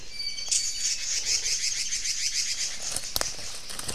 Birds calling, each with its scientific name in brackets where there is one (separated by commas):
Red-billed Leiothrix (Leiothrix lutea), Iiwi (Drepanis coccinea)